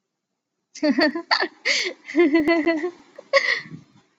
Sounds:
Laughter